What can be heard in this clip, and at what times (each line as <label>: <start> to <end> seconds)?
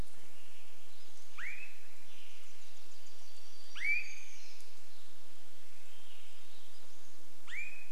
Swainson's Thrush song: 0 to 2 seconds
Swainson's Thrush call: 0 to 8 seconds
warbler song: 2 to 6 seconds
Swainson's Thrush song: 4 to 8 seconds
Pacific-slope Flycatcher call: 6 to 8 seconds